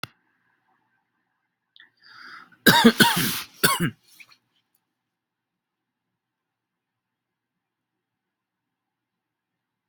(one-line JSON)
{"expert_labels": [{"quality": "good", "cough_type": "dry", "dyspnea": false, "wheezing": false, "stridor": false, "choking": false, "congestion": false, "nothing": true, "diagnosis": "upper respiratory tract infection", "severity": "mild"}], "gender": "female", "respiratory_condition": false, "fever_muscle_pain": false, "status": "healthy"}